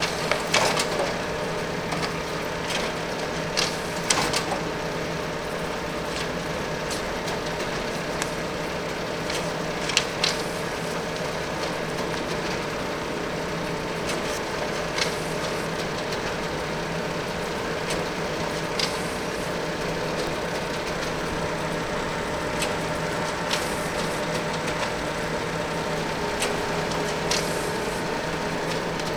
Is there a mechanical noise?
yes